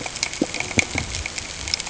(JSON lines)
{"label": "ambient", "recorder": "HydroMoth"}